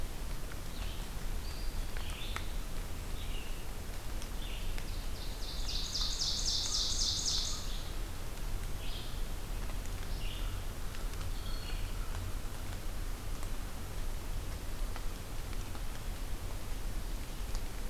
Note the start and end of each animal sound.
[0.00, 9.20] Red-eyed Vireo (Vireo olivaceus)
[1.39, 2.58] Eastern Wood-Pewee (Contopus virens)
[4.72, 7.95] Ovenbird (Seiurus aurocapilla)
[9.67, 12.01] Red-eyed Vireo (Vireo olivaceus)
[10.29, 12.46] American Crow (Corvus brachyrhynchos)

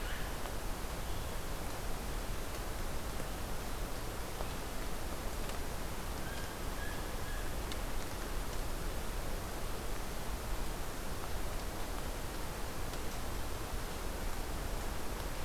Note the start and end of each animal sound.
[6.10, 7.68] Blue Jay (Cyanocitta cristata)

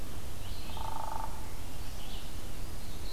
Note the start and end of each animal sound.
[0.00, 3.12] Red-eyed Vireo (Vireo olivaceus)
[0.26, 1.49] Hairy Woodpecker (Dryobates villosus)

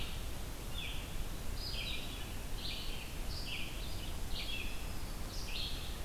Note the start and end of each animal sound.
[0.54, 6.05] Red-eyed Vireo (Vireo olivaceus)
[4.26, 5.56] Black-throated Green Warbler (Setophaga virens)

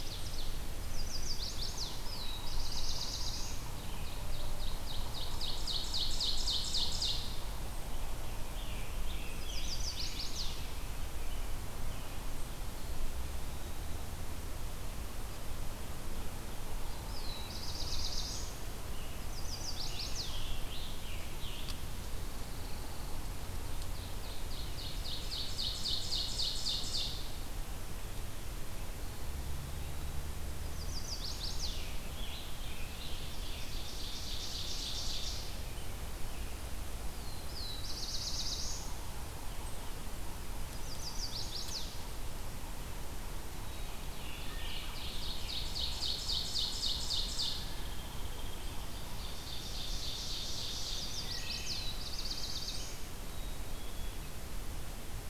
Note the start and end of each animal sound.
[0.00, 0.61] Ovenbird (Seiurus aurocapilla)
[0.70, 2.09] Chestnut-sided Warbler (Setophaga pensylvanica)
[1.44, 3.63] Black-throated Blue Warbler (Setophaga caerulescens)
[3.67, 7.31] Ovenbird (Seiurus aurocapilla)
[8.01, 10.69] Scarlet Tanager (Piranga olivacea)
[9.22, 10.72] Chestnut-sided Warbler (Setophaga pensylvanica)
[10.47, 12.29] American Robin (Turdus migratorius)
[12.64, 14.20] Eastern Wood-Pewee (Contopus virens)
[16.78, 18.64] Black-throated Blue Warbler (Setophaga caerulescens)
[18.91, 21.98] Scarlet Tanager (Piranga olivacea)
[19.05, 20.38] Chestnut-sided Warbler (Setophaga pensylvanica)
[22.06, 23.28] Pine Warbler (Setophaga pinus)
[23.41, 27.58] Ovenbird (Seiurus aurocapilla)
[28.93, 30.11] Eastern Wood-Pewee (Contopus virens)
[30.59, 31.87] Chestnut-sided Warbler (Setophaga pensylvanica)
[31.46, 33.81] Scarlet Tanager (Piranga olivacea)
[32.27, 35.57] Ovenbird (Seiurus aurocapilla)
[36.98, 38.93] Black-throated Blue Warbler (Setophaga caerulescens)
[40.63, 41.96] Chestnut-sided Warbler (Setophaga pensylvanica)
[44.09, 47.68] Ovenbird (Seiurus aurocapilla)
[47.37, 48.98] unidentified call
[48.99, 51.14] Ovenbird (Seiurus aurocapilla)
[50.54, 51.97] Chestnut-sided Warbler (Setophaga pensylvanica)
[51.25, 52.01] Wood Thrush (Hylocichla mustelina)
[51.37, 53.24] Black-throated Blue Warbler (Setophaga caerulescens)
[53.18, 54.36] Black-capped Chickadee (Poecile atricapillus)

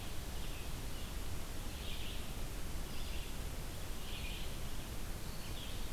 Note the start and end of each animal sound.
[0.00, 5.92] Red-eyed Vireo (Vireo olivaceus)

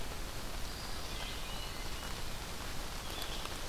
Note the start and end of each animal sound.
[0.00, 3.68] Red-eyed Vireo (Vireo olivaceus)
[0.48, 2.22] Eastern Wood-Pewee (Contopus virens)
[0.99, 2.38] Hermit Thrush (Catharus guttatus)

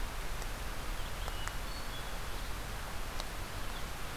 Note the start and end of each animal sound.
[1.02, 2.45] Hermit Thrush (Catharus guttatus)

